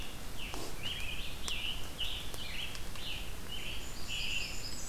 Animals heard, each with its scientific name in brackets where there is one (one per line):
Scarlet Tanager (Piranga olivacea)
Red-eyed Vireo (Vireo olivaceus)
Blackburnian Warbler (Setophaga fusca)